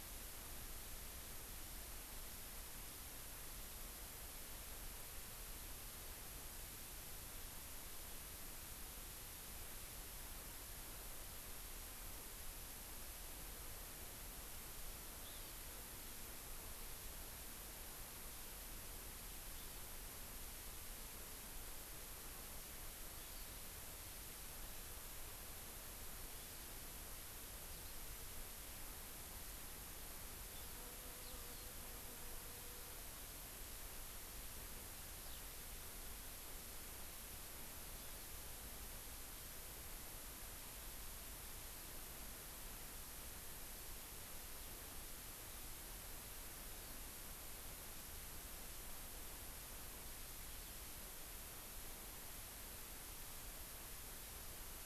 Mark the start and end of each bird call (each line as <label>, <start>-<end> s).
Hawaii Amakihi (Chlorodrepanis virens), 15.3-15.6 s
Eurasian Skylark (Alauda arvensis), 31.2-31.7 s
Eurasian Skylark (Alauda arvensis), 35.2-35.5 s